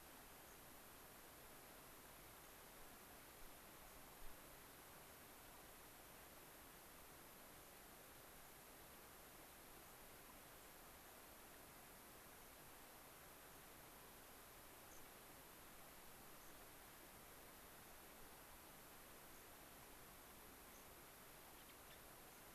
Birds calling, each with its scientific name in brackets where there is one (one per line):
unidentified bird
Gray-crowned Rosy-Finch (Leucosticte tephrocotis)